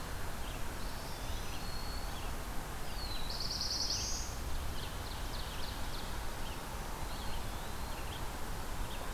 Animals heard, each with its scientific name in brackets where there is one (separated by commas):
Black-throated Blue Warbler (Setophaga caerulescens), Ovenbird (Seiurus aurocapilla), Red-eyed Vireo (Vireo olivaceus), Black-throated Green Warbler (Setophaga virens), Eastern Wood-Pewee (Contopus virens)